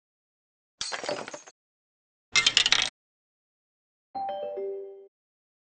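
First at 0.77 seconds, glass shatters. Then at 2.32 seconds, a coin drops loudly. Later, at 4.14 seconds, a ringtone is audible.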